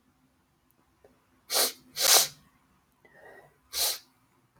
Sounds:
Sniff